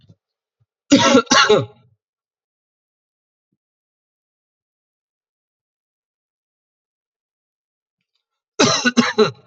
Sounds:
Cough